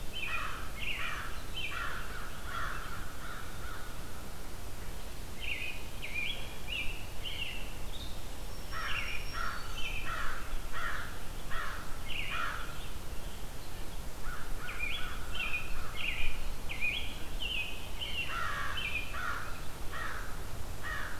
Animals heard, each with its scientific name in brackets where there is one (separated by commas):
Black-throated Green Warbler (Setophaga virens), American Crow (Corvus brachyrhynchos), American Robin (Turdus migratorius)